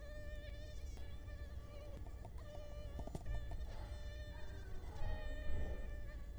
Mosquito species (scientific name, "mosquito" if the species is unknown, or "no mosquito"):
Culex quinquefasciatus